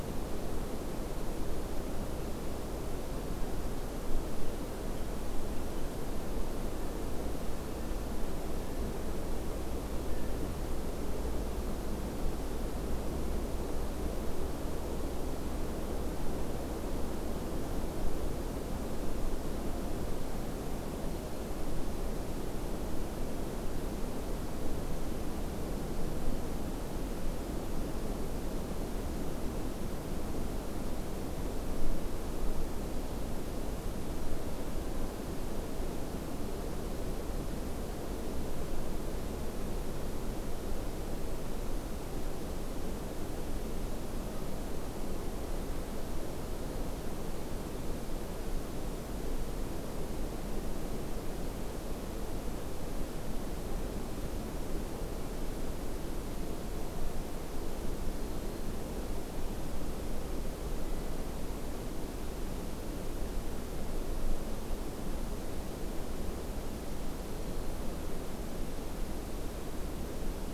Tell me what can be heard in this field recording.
Blue Jay